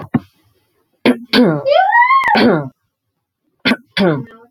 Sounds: Throat clearing